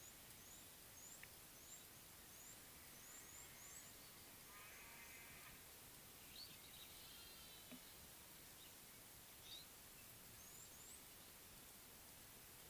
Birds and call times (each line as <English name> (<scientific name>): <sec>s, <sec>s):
Red-cheeked Cordonbleu (Uraeginthus bengalus): 1.1s, 10.8s